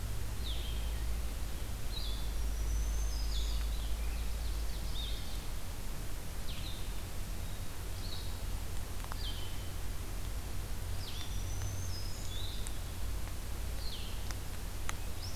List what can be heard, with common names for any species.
Blue-headed Vireo, Black-throated Green Warbler, Ovenbird, Black-capped Chickadee